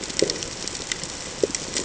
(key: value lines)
label: ambient
recorder: HydroMoth